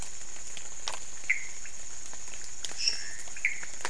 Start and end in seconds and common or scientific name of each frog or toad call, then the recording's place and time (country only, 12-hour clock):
0.0	3.8	pointedbelly frog
1.2	1.6	Pithecopus azureus
2.6	3.2	lesser tree frog
3.2	3.7	Pithecopus azureus
Brazil, 12:00am